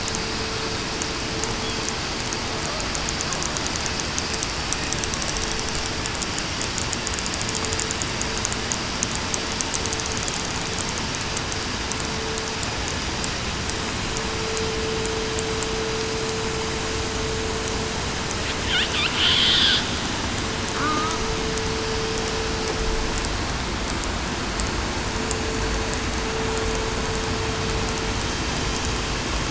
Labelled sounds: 20.8	21.2	killer whale, southern resident, 1.1 to 1.3 kHz

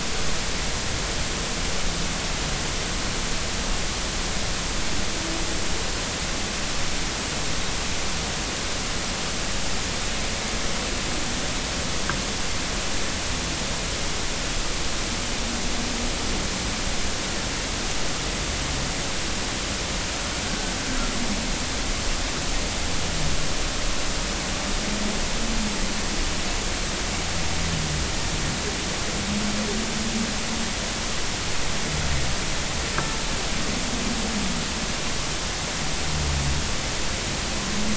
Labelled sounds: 20.5	20.7	humpback whale, 1.4 to 1.6 kHz

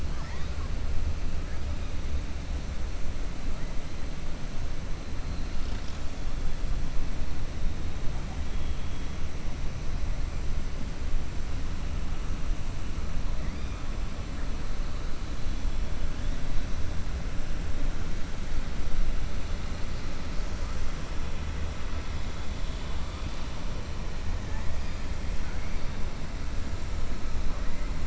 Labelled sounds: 0.0	0.7	killer whale, 0.83 to 5.4 kHz

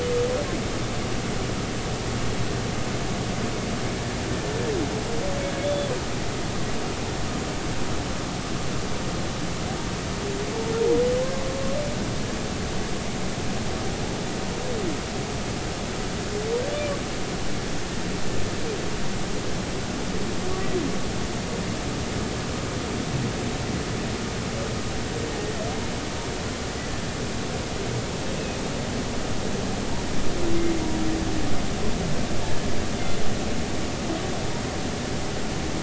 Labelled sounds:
5.6	5.9	humpback whale, 3.2 to 3.5 kHz

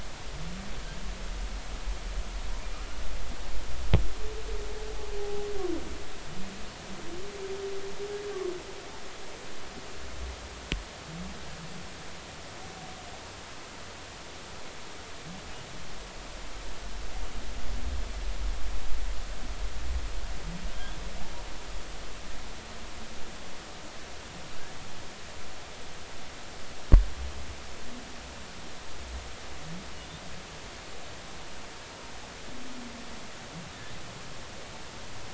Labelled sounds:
5.2	5.5	humpback whale, 0.80 to 0.86 kHz

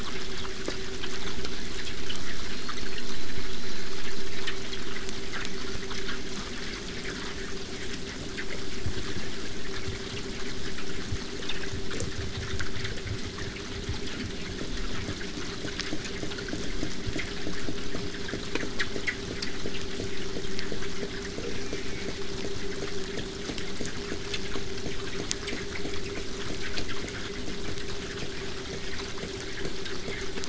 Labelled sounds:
1.4	4.7	killer whale, southern resident, 3.6 to 8.0 kHz
21.5	22.2	killer whale, southern resident, J pod, call S04, 1.2 to 2.9 kHz

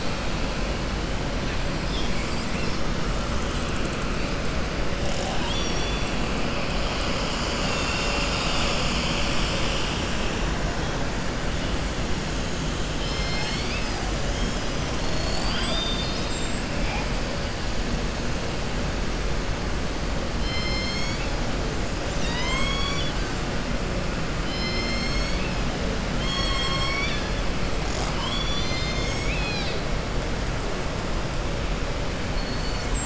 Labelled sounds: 12.9	14.0	killer whale, southern resident, 1.8 to 7.5 kHz
14.9	16.5	killer whale, southern resident, 0.68 to 5.6 kHz
22.3	23.2	killer whale, southern resident, 1.0 to 7.9 kHz
26.1	27.3	killer whale, southern resident, 1.1 to 7.7 kHz

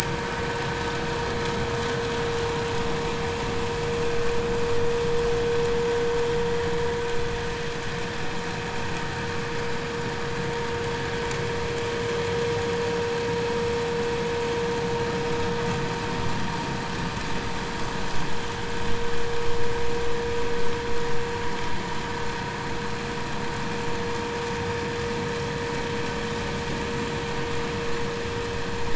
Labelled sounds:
0.2	0.5	vessel noise, 1.5 to 1.7 kHz
1.0	1.3	vessel noise, 1.5 to 1.8 kHz

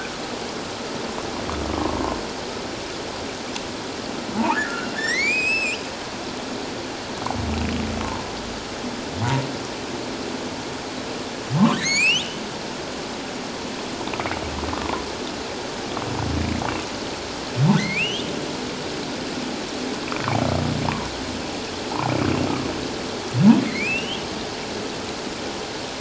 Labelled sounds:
1.8	2.2	humpback whale, 0.88 to 1.1 kHz
4.4	5.8	humpback whale, 0.78 to 8.0 kHz
11.8	12.4	humpback whale, 1.7 to 8.0 kHz
14.7	15.0	humpback whale, 0.97 to 1.3 kHz
17.8	18.3	humpback whale, 1.8 to 3.7 kHz
23.6	24.3	humpback whale, 1.9 to 3.4 kHz

